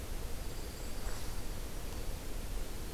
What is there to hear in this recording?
Dark-eyed Junco, Golden-crowned Kinglet